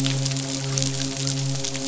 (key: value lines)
label: biophony, midshipman
recorder: SoundTrap 500